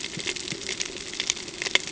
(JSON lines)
{"label": "ambient", "recorder": "HydroMoth"}